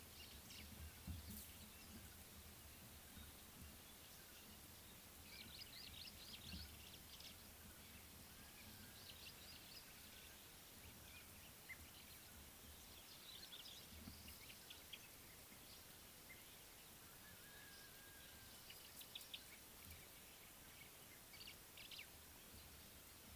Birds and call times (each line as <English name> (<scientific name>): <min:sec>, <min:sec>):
African Thrush (Turdus pelios): 0:19.2
White-browed Sparrow-Weaver (Plocepasser mahali): 0:21.9